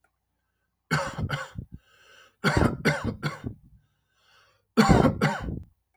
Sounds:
Cough